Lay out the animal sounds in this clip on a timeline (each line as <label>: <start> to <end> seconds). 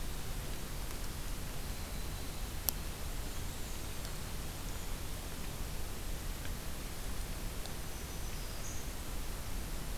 Winter Wren (Troglodytes hiemalis): 1.6 to 4.4 seconds
Black-and-white Warbler (Mniotilta varia): 3.2 to 4.2 seconds
Black-throated Green Warbler (Setophaga virens): 7.8 to 8.9 seconds